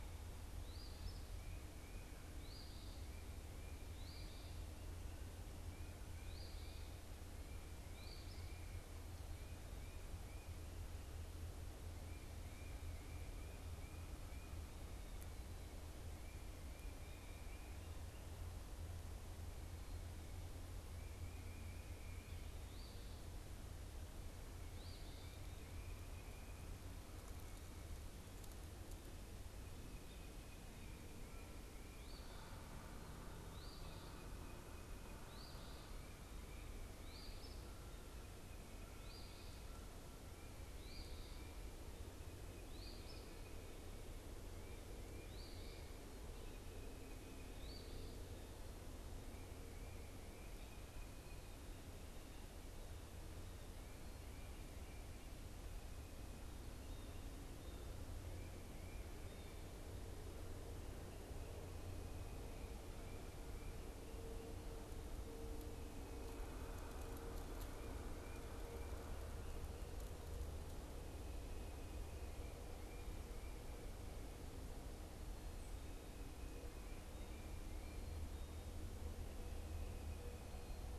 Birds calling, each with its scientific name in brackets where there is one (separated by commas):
Eastern Phoebe (Sayornis phoebe)